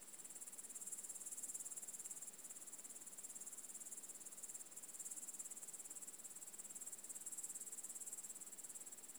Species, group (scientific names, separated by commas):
Tettigonia cantans, Orthoptera